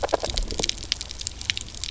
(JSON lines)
{"label": "biophony, grazing", "recorder": "SoundTrap 300"}